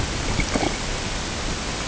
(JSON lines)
{"label": "ambient", "recorder": "HydroMoth"}